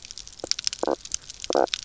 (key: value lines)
label: biophony, knock croak
recorder: SoundTrap 300